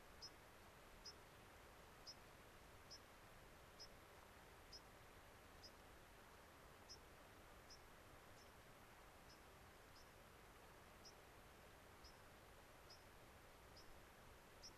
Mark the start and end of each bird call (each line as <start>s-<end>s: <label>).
0.0s-14.8s: American Pipit (Anthus rubescens)